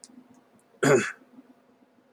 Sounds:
Cough